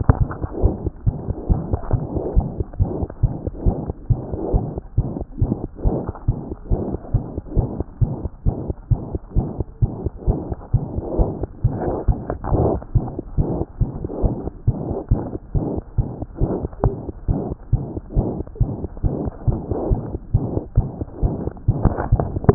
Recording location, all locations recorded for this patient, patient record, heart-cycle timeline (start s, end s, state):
mitral valve (MV)
aortic valve (AV)+mitral valve (MV)
#Age: Infant
#Sex: Female
#Height: 55.0 cm
#Weight: 5.4 kg
#Pregnancy status: False
#Murmur: Present
#Murmur locations: aortic valve (AV)+mitral valve (MV)
#Most audible location: mitral valve (MV)
#Systolic murmur timing: Holosystolic
#Systolic murmur shape: Plateau
#Systolic murmur grading: I/VI
#Systolic murmur pitch: Medium
#Systolic murmur quality: Blowing
#Diastolic murmur timing: nan
#Diastolic murmur shape: nan
#Diastolic murmur grading: nan
#Diastolic murmur pitch: nan
#Diastolic murmur quality: nan
#Outcome: Abnormal
#Campaign: 2014 screening campaign
0.00	0.62	unannotated
0.62	0.74	S1
0.74	0.84	systole
0.84	0.92	S2
0.92	1.08	diastole
1.08	1.16	S1
1.16	1.26	systole
1.26	1.34	S2
1.34	1.48	diastole
1.48	1.62	S1
1.62	1.70	systole
1.70	1.80	S2
1.80	1.92	diastole
1.92	2.04	S1
2.04	2.12	systole
2.12	2.22	S2
2.22	2.36	diastole
2.36	2.48	S1
2.48	2.58	systole
2.58	2.64	S2
2.64	2.80	diastole
2.80	2.90	S1
2.90	2.98	systole
2.98	3.08	S2
3.08	3.22	diastole
3.22	3.34	S1
3.34	3.44	systole
3.44	3.50	S2
3.50	3.64	diastole
3.64	3.76	S1
3.76	3.86	systole
3.86	3.94	S2
3.94	4.10	diastole
4.10	4.20	S1
4.20	4.28	systole
4.28	4.38	S2
4.38	4.52	diastole
4.52	4.64	S1
4.64	4.72	systole
4.72	4.80	S2
4.80	4.98	diastole
4.98	5.08	S1
5.08	5.20	systole
5.20	5.26	S2
5.26	5.40	diastole
5.40	5.52	S1
5.52	5.62	systole
5.62	5.66	S2
5.66	5.84	diastole
5.84	5.98	S1
5.98	6.08	systole
6.08	6.12	S2
6.12	6.28	diastole
6.28	6.38	S1
6.38	6.48	systole
6.48	6.54	S2
6.54	6.70	diastole
6.70	6.82	S1
6.82	6.90	systole
6.90	6.98	S2
6.98	7.14	diastole
7.14	7.24	S1
7.24	7.32	systole
7.32	7.42	S2
7.42	7.56	diastole
7.56	7.68	S1
7.68	7.78	systole
7.78	7.84	S2
7.84	8.02	diastole
8.02	8.14	S1
8.14	8.22	systole
8.22	8.30	S2
8.30	8.46	diastole
8.46	8.56	S1
8.56	8.66	systole
8.66	8.74	S2
8.74	8.90	diastole
8.90	9.00	S1
9.00	9.12	systole
9.12	9.20	S2
9.20	9.36	diastole
9.36	9.48	S1
9.48	9.58	systole
9.58	9.66	S2
9.66	9.82	diastole
9.82	9.92	S1
9.92	10.02	systole
10.02	10.10	S2
10.10	10.26	diastole
10.26	10.38	S1
10.38	10.48	systole
10.48	10.56	S2
10.56	10.74	diastole
10.74	10.84	S1
10.84	10.94	systole
10.94	11.02	S2
11.02	11.18	diastole
11.18	11.30	S1
11.30	11.40	systole
11.40	11.48	S2
11.48	11.64	diastole
11.64	11.76	S1
11.76	11.87	systole
11.87	12.01	S2
12.01	12.08	diastole
12.08	12.17	S1
12.17	12.30	systole
12.30	12.36	S2
12.36	12.52	diastole
12.52	12.72	S1
12.72	12.94	systole
12.94	13.08	S2
13.08	13.38	diastole
13.38	13.50	S1
13.50	13.56	systole
13.56	13.64	S2
13.64	13.80	diastole
13.80	13.90	S1
13.90	13.96	systole
13.96	14.06	S2
14.06	14.22	diastole
14.22	14.34	S1
14.34	14.44	systole
14.44	14.52	S2
14.52	14.68	diastole
14.68	14.78	S1
14.78	14.86	systole
14.86	14.96	S2
14.96	15.12	diastole
15.12	15.22	S1
15.22	15.32	systole
15.32	15.38	S2
15.38	15.56	diastole
15.56	15.66	S1
15.66	15.74	systole
15.74	15.82	S2
15.82	15.98	diastole
15.98	16.08	S1
16.08	16.18	systole
16.18	16.26	S2
16.26	16.42	diastole
16.42	16.54	S1
16.54	16.64	systole
16.64	16.70	S2
16.70	16.84	diastole
16.84	16.94	S1
16.94	17.04	systole
17.04	17.12	S2
17.12	17.28	diastole
17.28	17.40	S1
17.40	17.48	systole
17.48	17.56	S2
17.56	17.72	diastole
17.72	17.84	S1
17.84	17.92	systole
17.92	18.00	S2
18.00	18.16	diastole
18.16	18.28	S1
18.28	18.36	systole
18.36	18.44	S2
18.44	18.60	diastole
18.60	18.72	S1
18.72	18.80	systole
18.80	18.88	S2
18.88	19.04	diastole
19.04	19.14	S1
19.14	19.22	systole
19.22	19.32	S2
19.32	19.48	diastole
19.48	19.60	S1
19.60	19.70	systole
19.70	19.78	S2
19.78	19.90	diastole
19.90	20.00	S1
20.00	20.10	systole
20.10	20.18	S2
20.18	20.34	diastole
20.34	20.46	S1
20.46	20.54	systole
20.54	20.62	S2
20.62	20.76	diastole
20.76	20.88	S1
20.88	20.98	systole
20.98	21.06	S2
21.06	21.22	diastole
21.22	21.34	S1
21.34	21.44	systole
21.44	21.52	S2
21.52	21.68	diastole
21.68	21.78	S1
21.78	21.84	systole
21.84	21.90	S2
21.90	22.12	diastole
22.12	22.26	S1
22.26	22.46	systole
22.46	22.54	S2